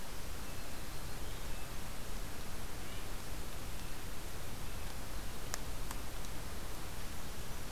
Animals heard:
forest ambience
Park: Katahdin Woods and Waters National Monument